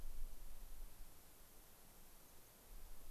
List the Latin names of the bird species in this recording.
Zonotrichia leucophrys